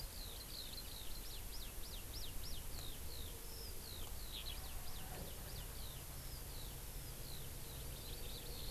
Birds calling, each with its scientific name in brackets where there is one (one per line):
Eurasian Skylark (Alauda arvensis)